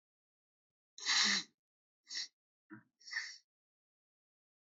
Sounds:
Sniff